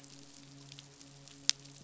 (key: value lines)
label: biophony, midshipman
recorder: SoundTrap 500